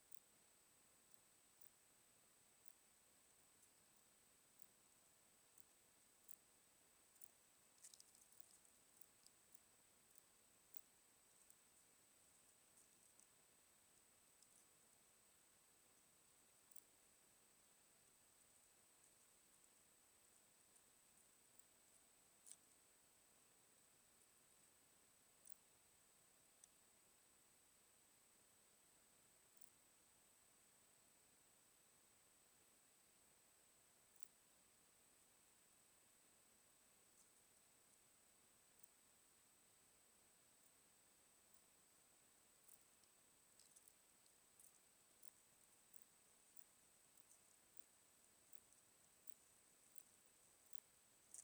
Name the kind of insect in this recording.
orthopteran